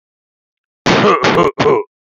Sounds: Cough